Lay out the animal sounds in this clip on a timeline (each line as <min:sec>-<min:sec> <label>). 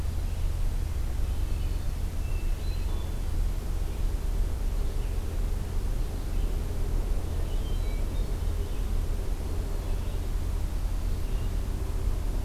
0:00.0-0:12.4 Red-eyed Vireo (Vireo olivaceus)
0:01.3-0:03.5 Hermit Thrush (Catharus guttatus)
0:07.0-0:08.5 Hermit Thrush (Catharus guttatus)